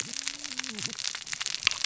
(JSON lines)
{"label": "biophony, cascading saw", "recorder": "SoundTrap 600 or HydroMoth"}